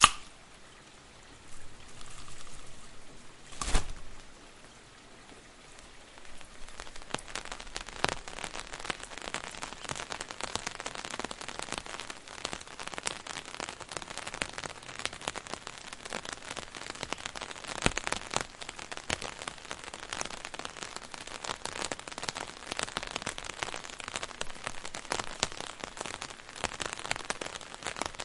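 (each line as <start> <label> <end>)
0.0 A loud sound of a bottle opening. 0.3
0.0 A mild rain is pouring calmly in the background. 28.2
3.5 An umbrella opening. 3.9
7.0 Raindrops fall distinctly and steadily. 28.2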